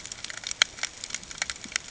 {"label": "ambient", "recorder": "HydroMoth"}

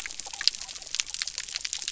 {"label": "biophony", "recorder": "SoundTrap 300"}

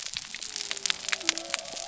{"label": "biophony", "recorder": "SoundTrap 300"}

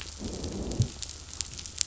{"label": "biophony, growl", "recorder": "SoundTrap 500"}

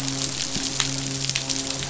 {"label": "biophony, midshipman", "recorder": "SoundTrap 500"}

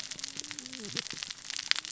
{"label": "biophony, cascading saw", "recorder": "SoundTrap 600 or HydroMoth"}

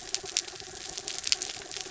{"label": "anthrophony, mechanical", "recorder": "SoundTrap 300"}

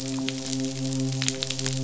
{"label": "biophony, midshipman", "recorder": "SoundTrap 500"}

